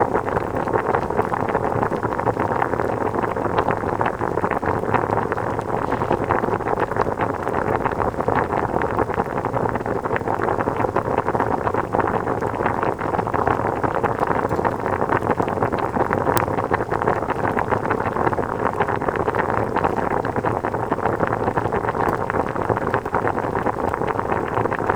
Is the wind powerful?
yes